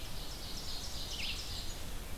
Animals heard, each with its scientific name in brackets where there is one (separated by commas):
Red-eyed Vireo (Vireo olivaceus), Ovenbird (Seiurus aurocapilla)